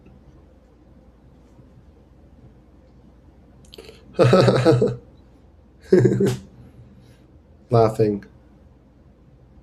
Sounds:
Laughter